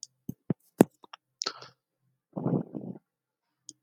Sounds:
Sigh